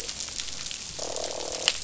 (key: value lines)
label: biophony, croak
recorder: SoundTrap 500